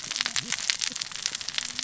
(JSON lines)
{"label": "biophony, cascading saw", "recorder": "SoundTrap 600 or HydroMoth"}